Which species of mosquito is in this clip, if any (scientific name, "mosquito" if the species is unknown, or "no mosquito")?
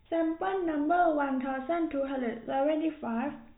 no mosquito